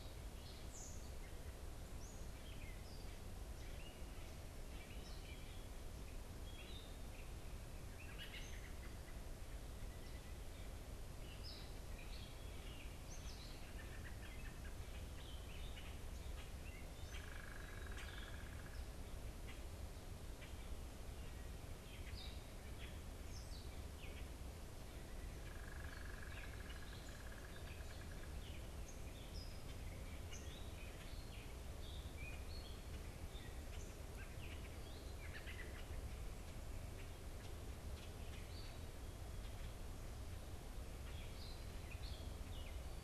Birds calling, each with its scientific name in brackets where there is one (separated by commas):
Red-winged Blackbird (Agelaius phoeniceus), American Robin (Turdus migratorius), unidentified bird, Gray Catbird (Dumetella carolinensis)